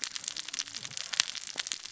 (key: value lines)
label: biophony, cascading saw
recorder: SoundTrap 600 or HydroMoth